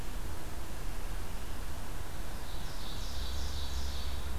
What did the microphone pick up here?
Ovenbird